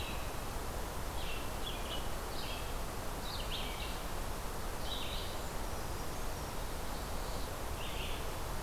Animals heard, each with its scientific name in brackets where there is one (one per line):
Red-eyed Vireo (Vireo olivaceus)
Brown Creeper (Certhia americana)